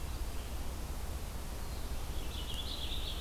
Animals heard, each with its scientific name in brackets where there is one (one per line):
Purple Finch (Haemorhous purpureus)
Red-eyed Vireo (Vireo olivaceus)